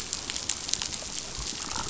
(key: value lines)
label: biophony, damselfish
recorder: SoundTrap 500